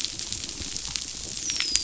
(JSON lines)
{"label": "biophony, dolphin", "recorder": "SoundTrap 500"}